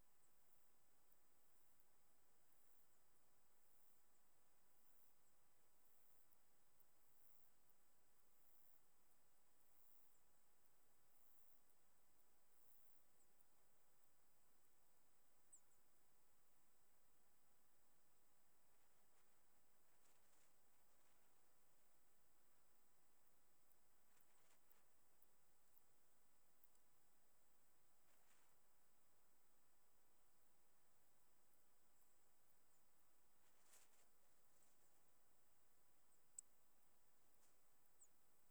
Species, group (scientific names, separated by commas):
Myrmeleotettix maculatus, Orthoptera